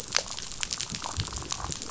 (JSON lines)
{"label": "biophony, damselfish", "recorder": "SoundTrap 500"}